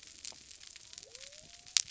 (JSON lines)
{"label": "biophony", "recorder": "SoundTrap 300"}